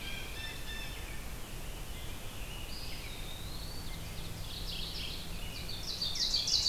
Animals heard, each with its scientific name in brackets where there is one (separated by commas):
Blue Jay (Cyanocitta cristata), Rose-breasted Grosbeak (Pheucticus ludovicianus), Mourning Warbler (Geothlypis philadelphia), American Robin (Turdus migratorius), Eastern Wood-Pewee (Contopus virens), Ovenbird (Seiurus aurocapilla)